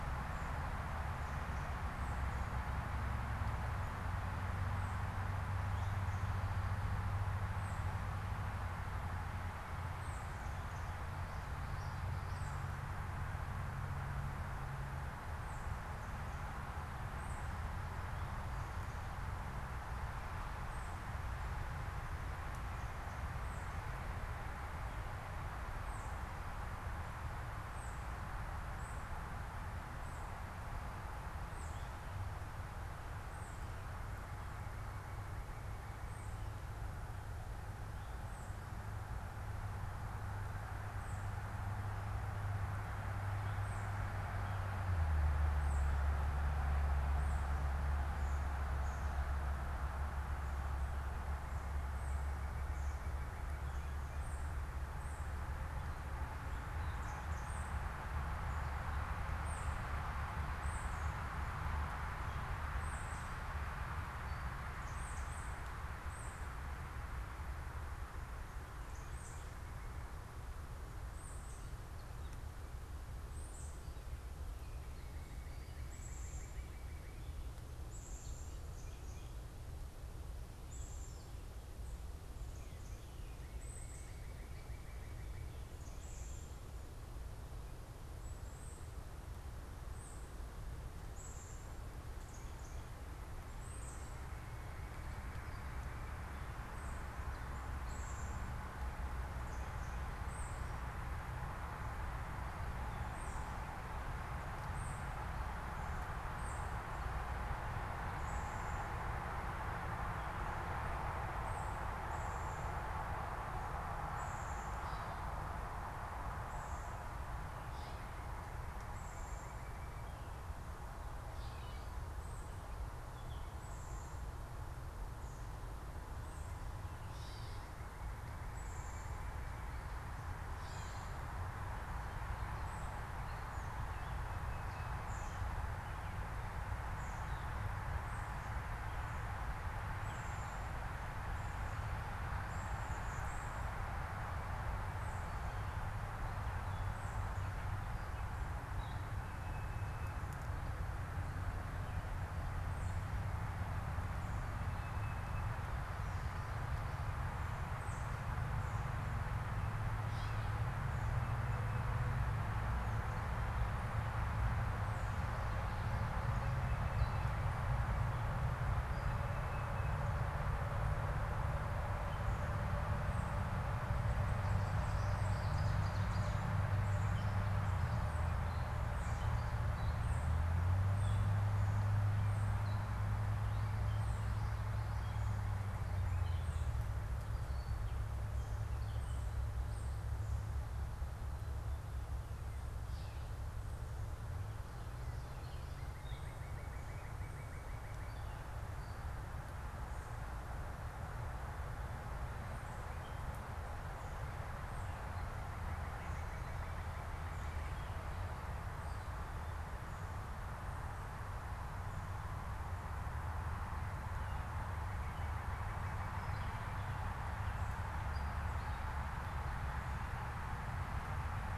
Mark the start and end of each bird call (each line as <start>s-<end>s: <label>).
0.0s-44.3s: unidentified bird
45.5s-57.9s: unidentified bird
51.1s-54.4s: Northern Cardinal (Cardinalis cardinalis)
58.5s-145.6s: unidentified bird
74.5s-77.4s: Northern Cardinal (Cardinalis cardinalis)
82.4s-85.5s: Northern Cardinal (Cardinalis cardinalis)
117.7s-120.2s: Northern Cardinal (Cardinalis cardinalis)
121.1s-122.1s: Gray Catbird (Dumetella carolinensis)
126.9s-128.0s: Gray Catbird (Dumetella carolinensis)
130.3s-131.2s: Gray Catbird (Dumetella carolinensis)
159.8s-160.8s: unidentified bird
161.1s-170.4s: unidentified bird
174.7s-190.2s: unidentified bird
183.9s-186.5s: Northern Cardinal (Cardinalis cardinalis)
192.6s-193.6s: Gray Catbird (Dumetella carolinensis)
195.6s-198.3s: Northern Cardinal (Cardinalis cardinalis)
204.8s-208.0s: Northern Cardinal (Cardinalis cardinalis)
214.1s-216.9s: Northern Cardinal (Cardinalis cardinalis)